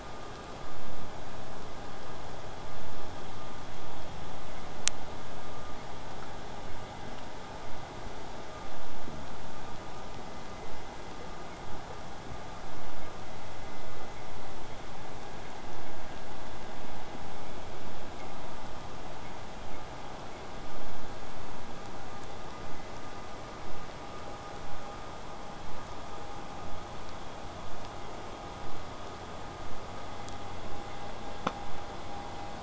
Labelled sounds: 27.6	32.6	vessel noise, 0 to 8.0 kHz

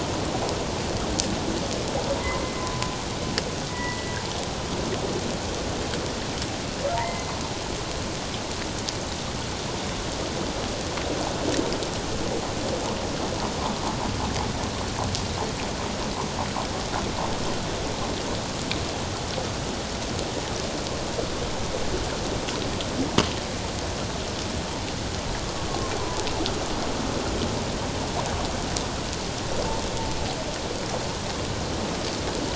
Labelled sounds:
2.2	2.7	humpback whale, 0.91 to 2.1 kHz
3.7	4.2	humpback whale, 0.94 to 2.0 kHz
6.9	7.3	humpback whale, 0.84 to 2.1 kHz

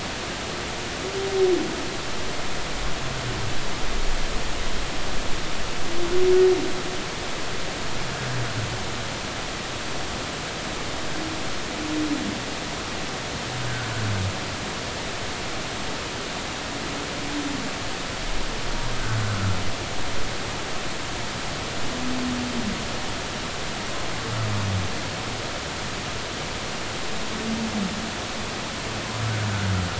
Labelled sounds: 19.3	19.6	humpback whale, 1.2 to 1.4 kHz

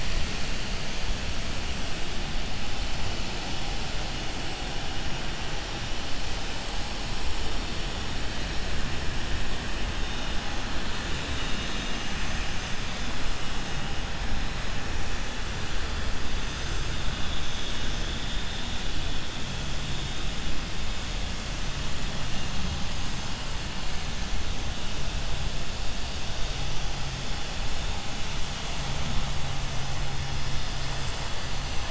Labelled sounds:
11.2	12.8	vessel noise, 1.9 to 7.2 kHz

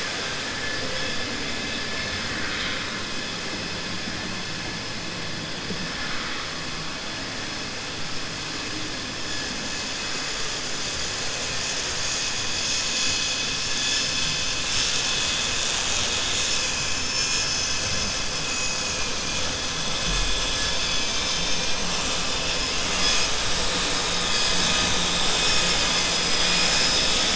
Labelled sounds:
2.2	2.8	vessel noise, 1.2 to 4.1 kHz

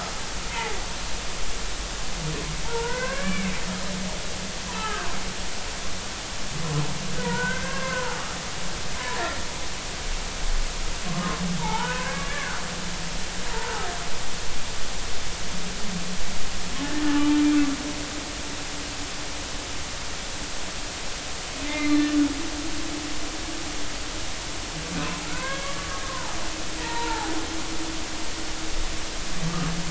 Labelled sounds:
0.5	0.8	humpback whale, 0.80 to 0.99 kHz
2.6	3.5	humpback whale, 0.86 to 2.8 kHz
4.7	5.1	humpback whale, 0.80 to 1.8 kHz
7.2	8.2	humpback whale, 0.80 to 1.7 kHz
9.0	9.4	humpback whale, 1.6 to 2.0 kHz
11.6	12.6	humpback whale, 0.80 to 1.8 kHz
21.6	22.0	humpback whale, 2.0 to 2.5 kHz
25.3	26.3	humpback whale, 0.80 to 2.3 kHz
26.8	27.3	humpback whale, 0.80 to 2.0 kHz

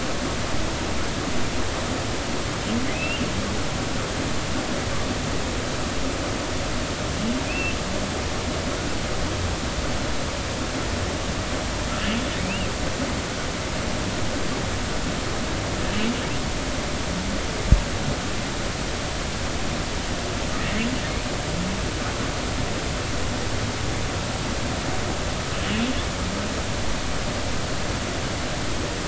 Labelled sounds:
2.9	3.2	humpback whale, 2.4 to 2.9 kHz
7.4	7.7	humpback whale, 2.4 to 2.8 kHz
12.4	12.7	humpback whale, 2.1 to 2.9 kHz

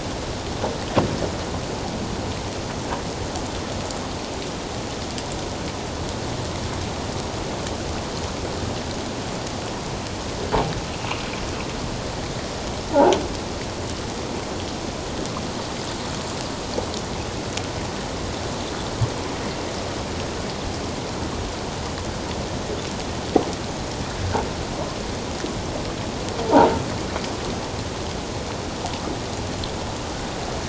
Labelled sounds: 26.5	26.7	croaking sound likely from a nearby submerged object, 0.78 to 1.0 kHz

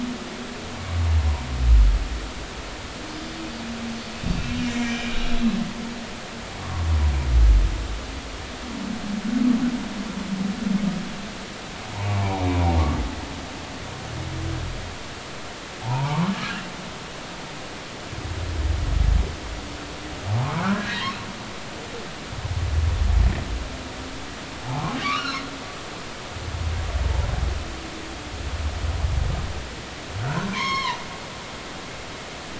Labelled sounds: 4.4	5.2	humpback whale, 2.3 to 2.8 kHz
6.6	6.9	humpback whale, 0.93 to 1.2 kHz
12.2	12.4	humpback whale, 0.80 to 1.0 kHz
15.8	16.7	humpback whale, 0.80 to 2.0 kHz
20.7	21.1	humpback whale, 1.6 to 2.0 kHz
25.0	26.0	humpback whale, 0.80 to 5.6 kHz
30.2	31.0	humpback whale, 0.86 to 6.6 kHz

